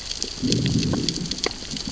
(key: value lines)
label: biophony, growl
recorder: SoundTrap 600 or HydroMoth